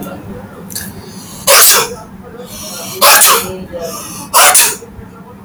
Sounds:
Sneeze